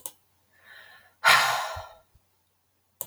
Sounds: Sigh